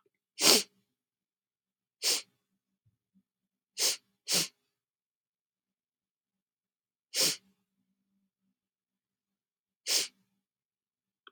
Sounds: Sniff